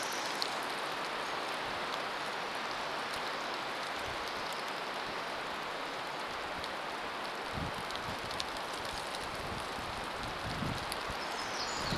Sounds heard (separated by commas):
rain, Pacific Wren song